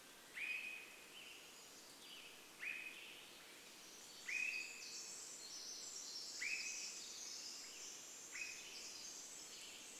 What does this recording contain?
Pacific-slope Flycatcher call, Western Tanager song, Swainson's Thrush call, Pacific Wren song